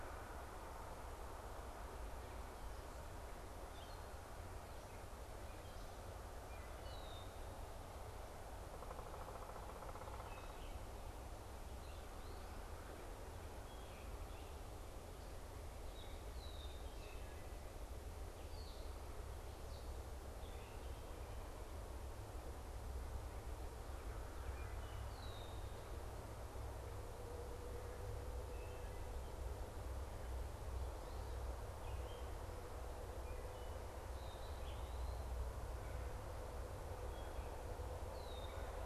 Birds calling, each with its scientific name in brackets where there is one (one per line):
Eastern Wood-Pewee (Contopus virens)
Red-winged Blackbird (Agelaius phoeniceus)
unidentified bird
Wood Thrush (Hylocichla mustelina)